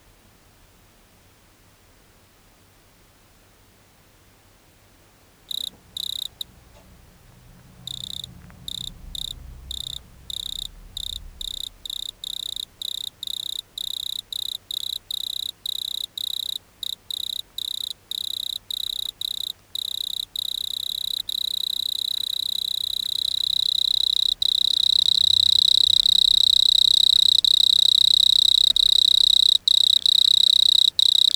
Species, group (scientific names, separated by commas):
Nemobius sylvestris, Orthoptera